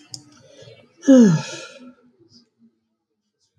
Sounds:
Sigh